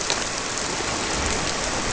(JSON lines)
{"label": "biophony", "recorder": "SoundTrap 300"}